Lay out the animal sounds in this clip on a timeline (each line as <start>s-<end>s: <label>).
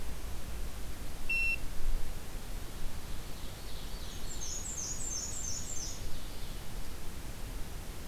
2.9s-4.6s: Ovenbird (Seiurus aurocapilla)
4.2s-6.5s: Black-and-white Warbler (Mniotilta varia)